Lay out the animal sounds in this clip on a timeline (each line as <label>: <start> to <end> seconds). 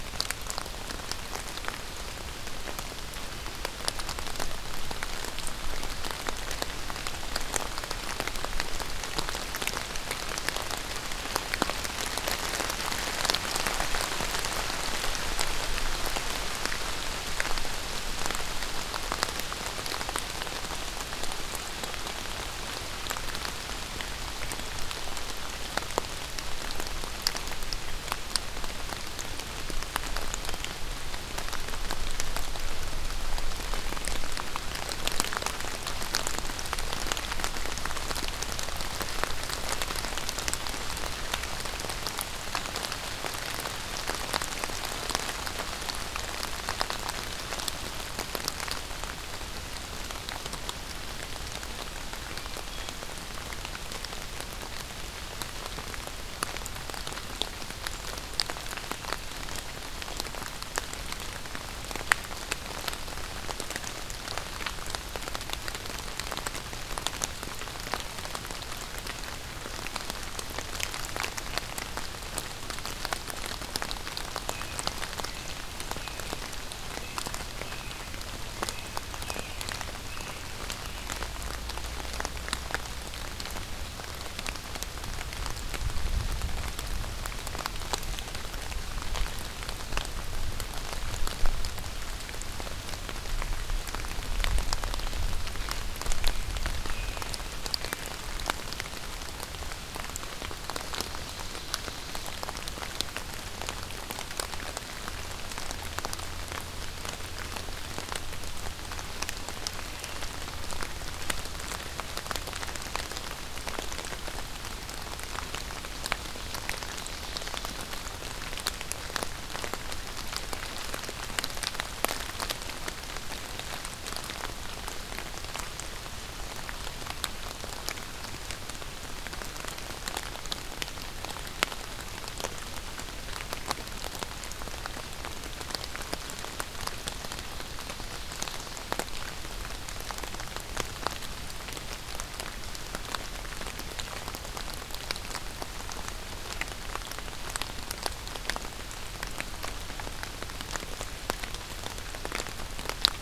American Robin (Turdus migratorius): 74.4 to 81.2 seconds
American Robin (Turdus migratorius): 96.7 to 97.5 seconds
Ovenbird (Seiurus aurocapilla): 100.6 to 102.3 seconds
Ovenbird (Seiurus aurocapilla): 116.2 to 117.9 seconds
Ovenbird (Seiurus aurocapilla): 137.0 to 138.9 seconds